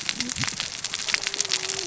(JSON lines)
{"label": "biophony, cascading saw", "recorder": "SoundTrap 600 or HydroMoth"}